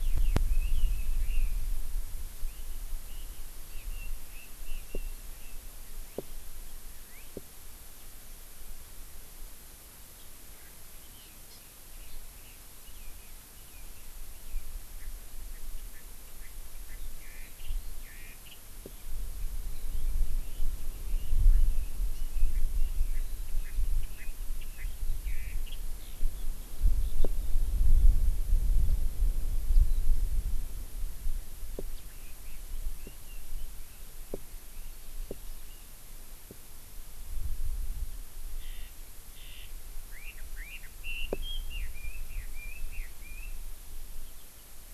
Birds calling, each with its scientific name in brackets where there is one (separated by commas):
Hawaii Amakihi (Chlorodrepanis virens), Chinese Hwamei (Garrulax canorus)